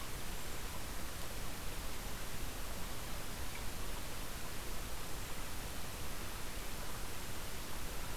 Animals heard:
forest ambience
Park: Acadia National Park